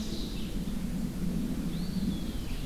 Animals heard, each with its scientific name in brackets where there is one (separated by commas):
Ovenbird (Seiurus aurocapilla), Eastern Wood-Pewee (Contopus virens), Red-eyed Vireo (Vireo olivaceus)